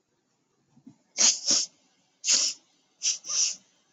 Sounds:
Sniff